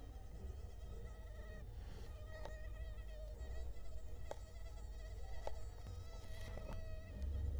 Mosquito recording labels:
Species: Culex quinquefasciatus; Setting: cup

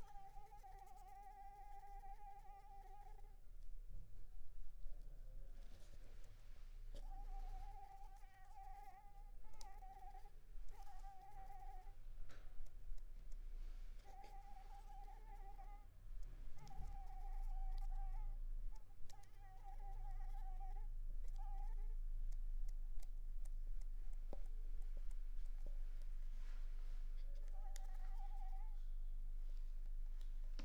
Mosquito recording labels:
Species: Anopheles arabiensis; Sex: female; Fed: unfed; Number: one; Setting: cup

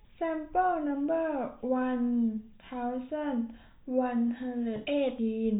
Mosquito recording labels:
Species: no mosquito; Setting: cup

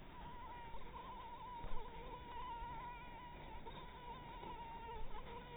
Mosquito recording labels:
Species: Anopheles maculatus; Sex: female; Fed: blood-fed; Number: one; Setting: cup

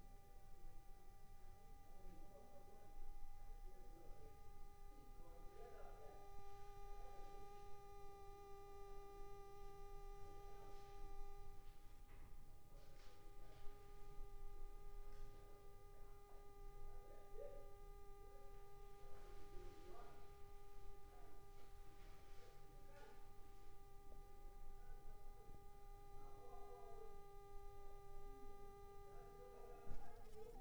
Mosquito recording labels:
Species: Anopheles funestus s.s.; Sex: female; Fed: unfed; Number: one; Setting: cup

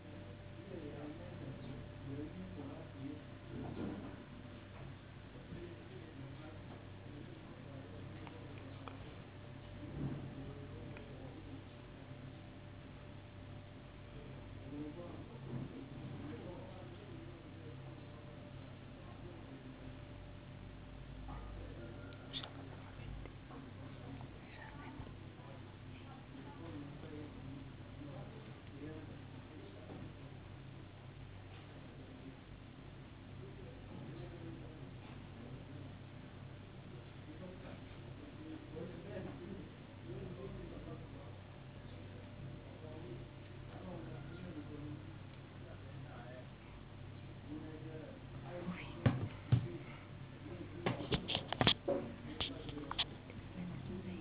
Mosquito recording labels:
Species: no mosquito; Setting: insect culture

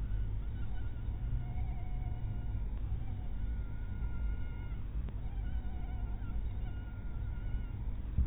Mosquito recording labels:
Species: mosquito; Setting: cup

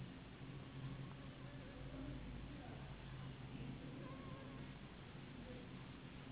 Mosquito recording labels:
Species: Anopheles gambiae s.s.; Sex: female; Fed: unfed; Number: one; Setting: insect culture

